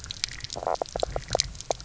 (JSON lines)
{"label": "biophony, knock croak", "recorder": "SoundTrap 300"}